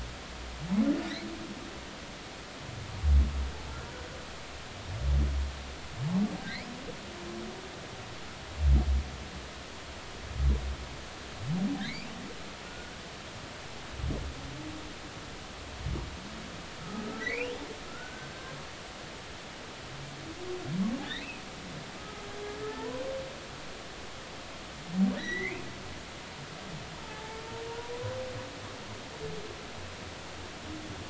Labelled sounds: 1.0	1.3	humpback whale, 3.6 to 4.3 kHz
11.8	13.0	humpback whale, 1.4 to 2.8 kHz
17.2	17.6	humpback whale, 1.9 to 3.2 kHz
17.8	18.6	humpback whale, 1.3 to 1.7 kHz
21.0	22.3	humpback whale, 1.2 to 4.1 kHz
22.6	23.0	humpback whale, 0.83 to 1.9 kHz
25.2	25.6	humpback whale, 1.7 to 4.1 kHz
26.9	27.9	humpback whale, 0.83 to 0.99 kHz

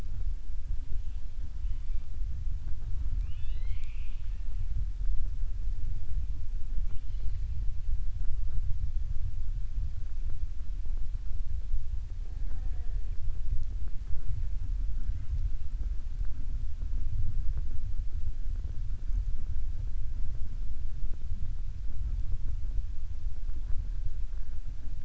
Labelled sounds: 3.1	4.4	killer whale, southern resident, 1.1 to 7.7 kHz

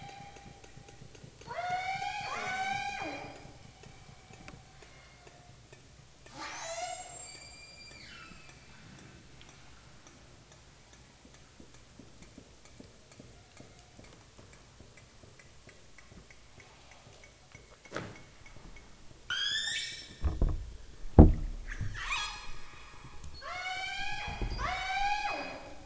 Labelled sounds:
1.3	3.5	killer whale, southern Alaska resident, 0.28 to 8.0 kHz
4.7	5.4	killer whale, southern Alaska resident, 1.1 to 4.8 kHz
6.3	8.7	killer whale, southern Alaska resident, 0.32 to 8.0 kHz
19.3	20.2	killer whale, southern Alaska resident, 0.64 to 8.0 kHz
21.6	22.7	killer whale, southern Alaska resident, 0.46 to 8.0 kHz
23.3	25.8	killer whale, southern Alaska resident, 0.37 to 8.0 kHz

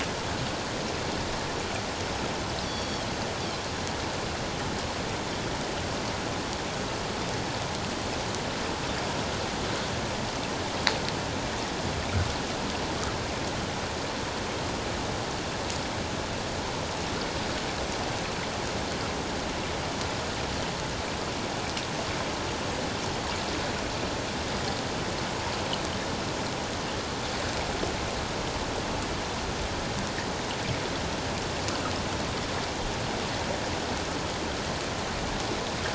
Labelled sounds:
2.6	3.1	Pacific white-sided dolphin, 3.1 to 5.7 kHz

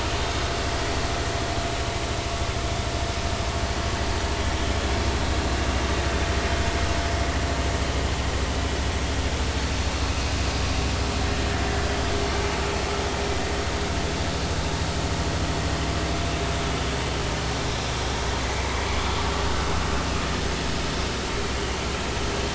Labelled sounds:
10.0	10.3	vessel noise, 2.4 to 2.7 kHz

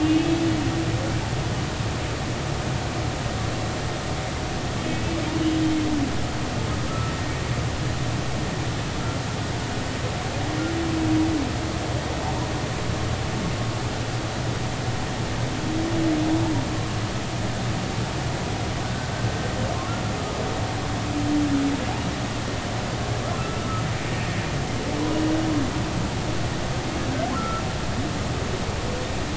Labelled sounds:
0.0	0.5	humpback whale, 2.5 to 3.4 kHz
6.9	7.1	humpback whale, 1.2 to 1.4 kHz
27.3	27.6	humpback whale, 1.3 to 1.4 kHz

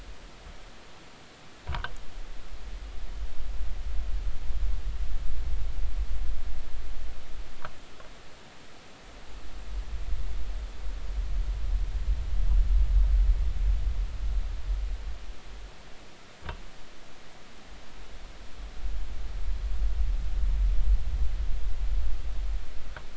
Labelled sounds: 1.7	1.9	noise likely from the mooring, 0.90 to 1.6 kHz

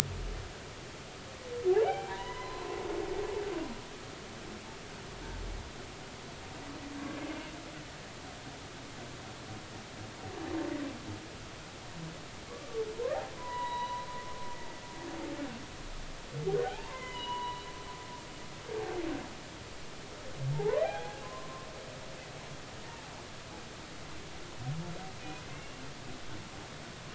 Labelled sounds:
1.7	2.7	humpback whale, 0.80 to 4.1 kHz
12.5	12.8	humpback whale, 1.1 to 1.2 kHz
13.4	14.1	humpback whale, 0.90 to 4.0 kHz
16.6	17.7	humpback whale, 0.80 to 4.0 kHz
20.5	21.7	humpback whale, 0.80 to 3.4 kHz
22.8	23.1	humpback whale, 0.80 to 0.96 kHz
25.5	25.8	humpback whale, 2.6 to 2.8 kHz

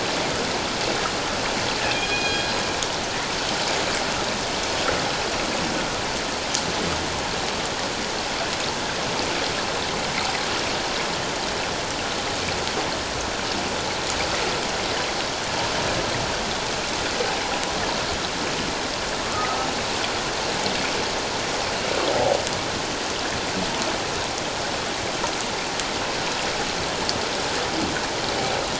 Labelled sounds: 1.8	2.5	killer whale, northern resident, G clan, call N24ii, 2.3 to 5.0 kHz
19.3	19.6	humpback whale, 1.1 to 1.4 kHz

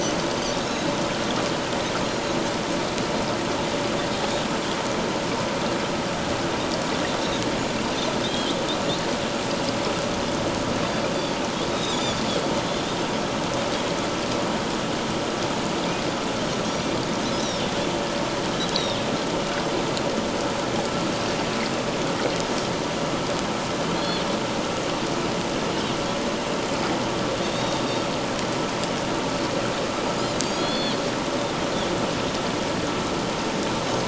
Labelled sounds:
0.6	0.9	Pacific white-sided dolphin, 3.8 to 4.1 kHz
8.2	8.6	Pacific white-sided dolphin, 3.0 to 3.5 kHz
11.7	12.0	Pacific white-sided dolphin, 3.5 to 3.9 kHz
16.6	16.9	Pacific white-sided dolphin, 5.6 to 5.9 kHz
17.4	17.6	Pacific white-sided dolphin, 3.6 to 4.0 kHz
18.7	19.0	Pacific white-sided dolphin, 3.3 to 4.0 kHz
23.9	24.2	Pacific white-sided dolphin, 3.2 to 4.4 kHz
27.5	27.8	Pacific white-sided dolphin, 3.4 to 3.8 kHz
30.5	31.0	Pacific white-sided dolphin, 3.2 to 4.4 kHz

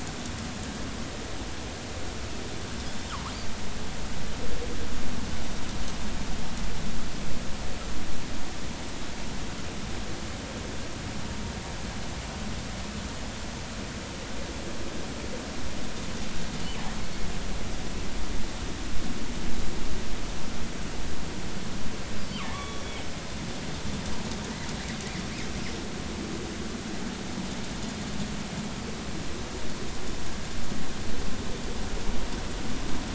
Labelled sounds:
22.5	22.8	killer whale, northern resident, G clan, call N23i, 1.1 to 3.6 kHz

